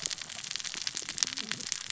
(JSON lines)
{"label": "biophony, cascading saw", "recorder": "SoundTrap 600 or HydroMoth"}